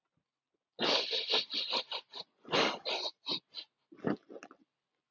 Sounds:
Sniff